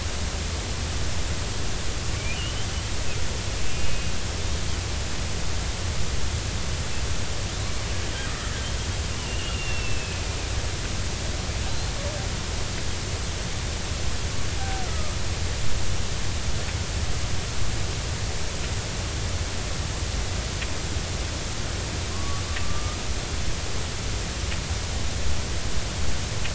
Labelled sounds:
2.1	2.7	killer whale, Bigg's (transient), 2.2 to 3.2 kHz
3.7	4.1	killer whale, Bigg's (transient), 2.4 to 2.9 kHz
8.3	8.7	killer whale, Bigg's (transient), 1.2 to 1.9 kHz
9.2	10.4	killer whale, Bigg's (transient), 2.4 to 3.0 kHz
14.8	15.2	killer whale, Bigg's (transient), 1.1 to 1.5 kHz
22.1	23.0	killer whale, Bigg's (transient), 1.0 to 1.3 kHz

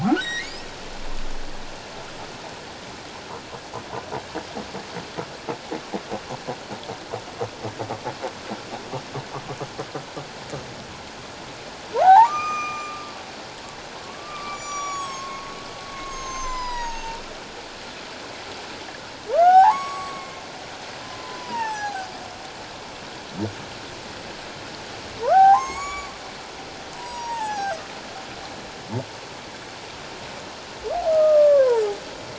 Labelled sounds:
0.0	0.6	humpback whale, 1.0 to 5.8 kHz
11.9	13.1	humpback whale, 0.78 to 7.4 kHz
14.0	17.2	humpback whale, 0.84 to 8.0 kHz
19.3	20.4	humpback whale, 0.78 to 7.9 kHz
21.0	22.1	humpback whale, 0.78 to 6.3 kHz
25.2	26.1	humpback whale, 0.78 to 8.0 kHz
27.0	27.8	humpback whale, 0.78 to 6.8 kHz
31.1	31.8	humpback whale, 0.84 to 1.8 kHz

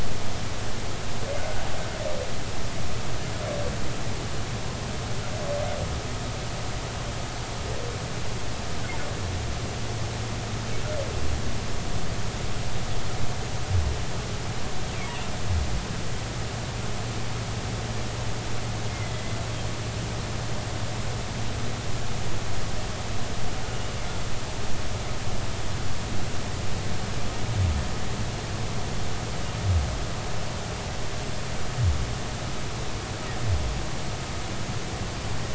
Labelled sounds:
18.9	19.2	humpback whale, 2.0 to 2.2 kHz

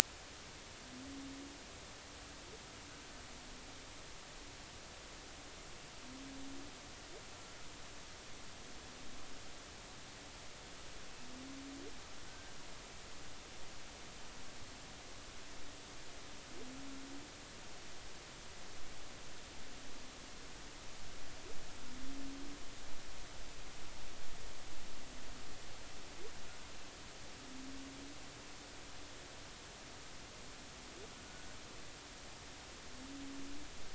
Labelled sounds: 12.3	12.5	humpback whale, 1.5 to 1.6 kHz

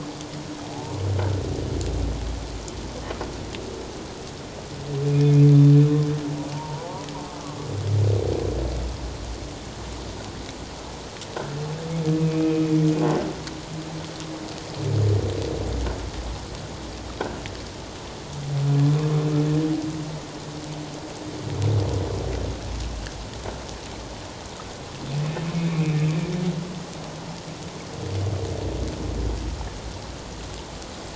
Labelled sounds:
5.0	5.5	humpback whale, 2.4 to 2.7 kHz
6.5	7.1	humpback whale, 0.81 to 1.0 kHz
12.3	12.6	humpback whale, 2.2 to 2.6 kHz
25.6	26.0	humpback whale, 2.2 to 2.7 kHz

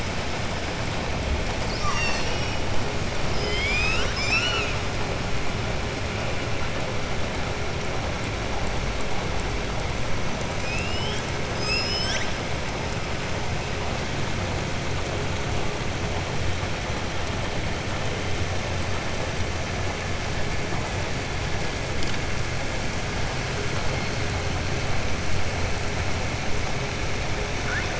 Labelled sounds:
1.6	2.5	killer whale, southern resident, 0.97 to 7.8 kHz
3.2	4.7	killer whale, southern resident, 1.2 to 7.6 kHz

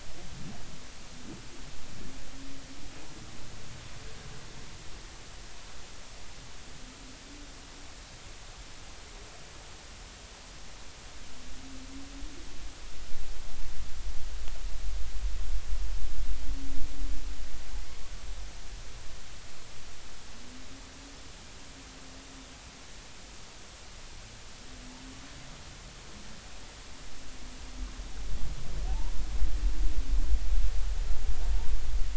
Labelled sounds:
28.9	29.1	humpback whale, 0.80 to 1.0 kHz

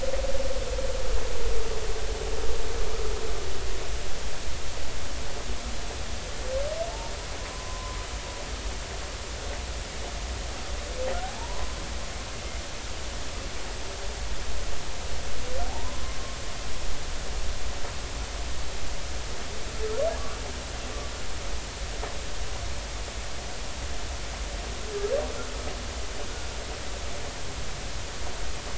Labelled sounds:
7.5	8.0	humpback whale, 0.96 to 1.1 kHz
11.2	11.8	humpback whale, 0.80 to 1.1 kHz
15.7	16.0	humpback whale, 0.80 to 1.1 kHz

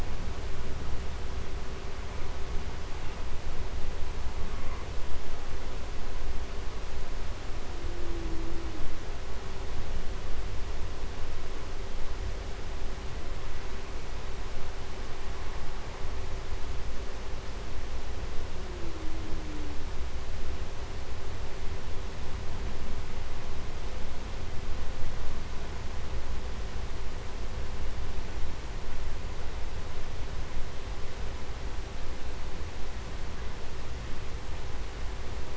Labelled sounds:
4.3	5.0	humpback whale, 0.76 to 2.7 kHz

